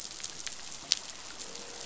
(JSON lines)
{"label": "biophony, croak", "recorder": "SoundTrap 500"}